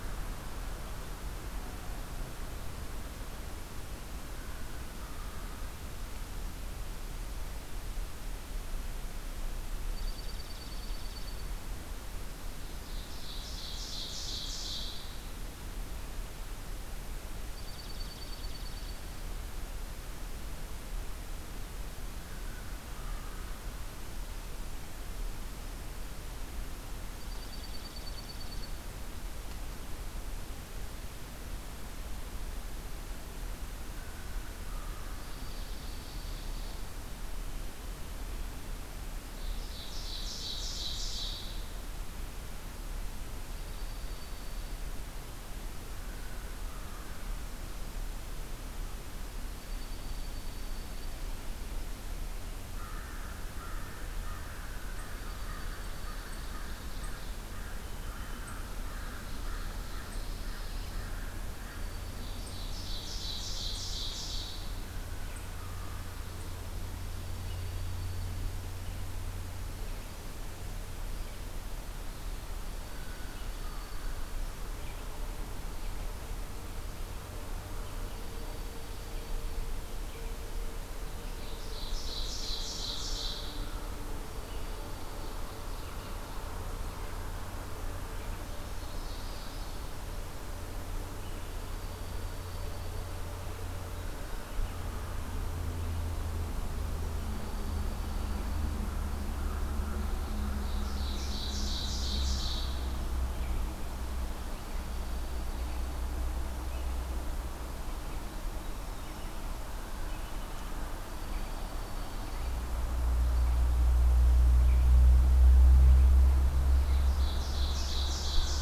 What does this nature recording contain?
Dark-eyed Junco, Ovenbird, American Crow, Chipping Sparrow